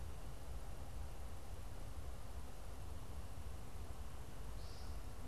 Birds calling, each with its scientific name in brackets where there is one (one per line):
American Woodcock (Scolopax minor)